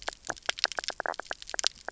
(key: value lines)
label: biophony, knock croak
recorder: SoundTrap 300